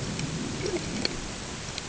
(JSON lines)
{"label": "ambient", "recorder": "HydroMoth"}